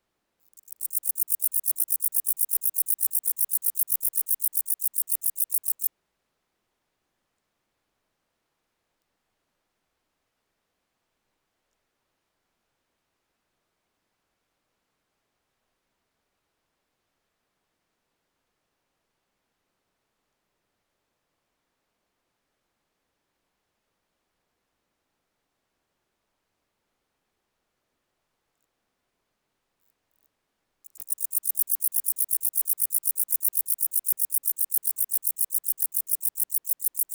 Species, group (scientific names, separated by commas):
Pholidoptera macedonica, Orthoptera